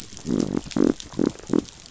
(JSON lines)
{"label": "biophony", "recorder": "SoundTrap 500"}